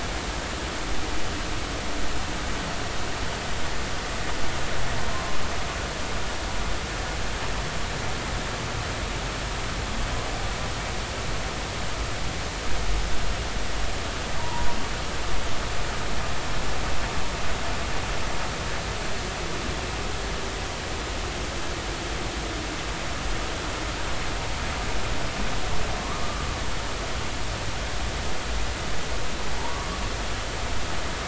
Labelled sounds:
14.4	14.7	humpback whale, 0.86 to 1.0 kHz
26.2	26.4	humpback whale, 1.1 to 1.2 kHz
30.7	31.0	humpback whale, 1.1 to 1.2 kHz

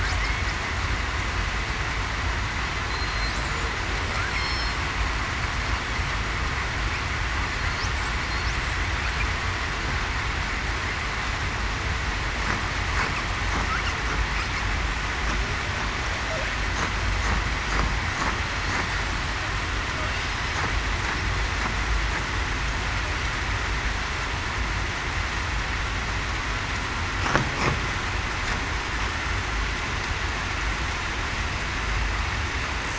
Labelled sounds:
4.3	4.7	killer whale, southern resident, 5.3 to 5.4 kHz
20.3	20.6	killer whale, southern resident, 7.97 to 8.00 kHz

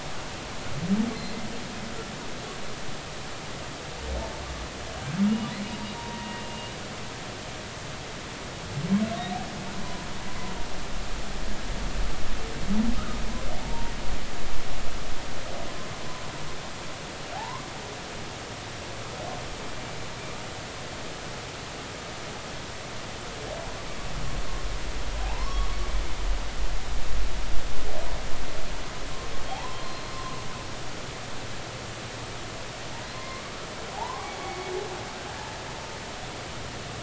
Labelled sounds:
5.7	6.8	humpback whale, 0.90 to 4.8 kHz
13.6	13.9	humpback whale, 0.83 to 0.99 kHz
17.3	17.7	humpback whale, 0.80 to 1.2 kHz
25.2	25.7	humpback whale, 0.80 to 1.2 kHz
29.5	30.4	humpback whale, 0.80 to 4.3 kHz
33.1	33.6	humpback whale, 0.99 to 1.3 kHz
33.9	34.3	humpback whale, 0.80 to 1.2 kHz

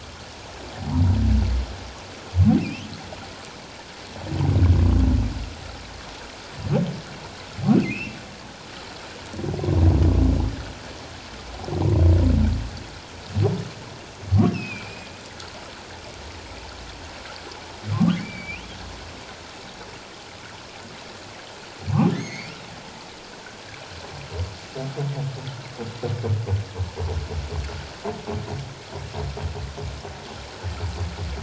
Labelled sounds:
2.6	2.9	humpback whale, 2.3 to 3.4 kHz
7.7	8.2	humpback whale, 2.0 to 2.8 kHz
14.5	15.1	humpback whale, 2.3 to 2.9 kHz
17.9	18.8	humpback whale, 0.97 to 3.5 kHz
22.1	22.5	humpback whale, 1.7 to 2.5 kHz

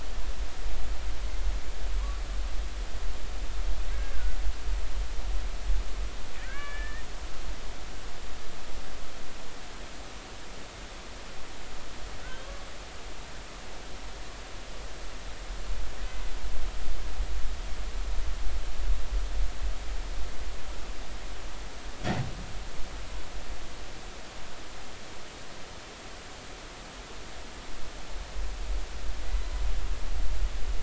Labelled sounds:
3.9	4.4	humpback whale, 1.4 to 1.8 kHz
6.4	7.1	humpback whale, 1.5 to 2.4 kHz
12.2	12.7	humpback whale, 1.0 to 3.4 kHz

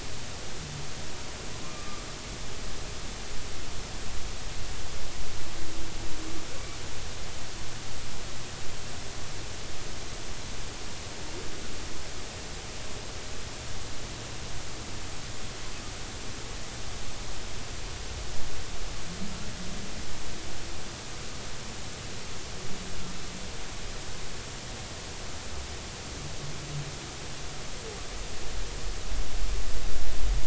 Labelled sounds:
1.6	2.0	humpback whale, 1.0 to 1.2 kHz

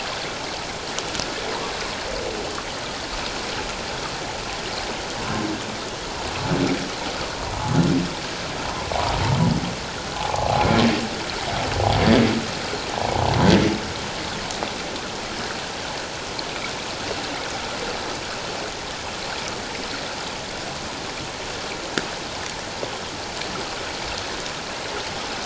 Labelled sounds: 10.2	10.7	humpback whale, 0.78 to 1.2 kHz
12.9	13.2	humpback whale, 0.78 to 1.0 kHz

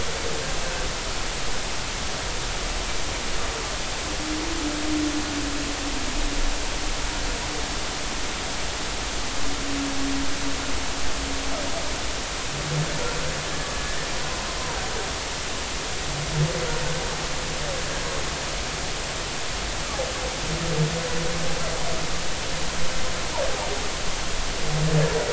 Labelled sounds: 14.6	14.8	humpback whale, 0.80 to 1.1 kHz

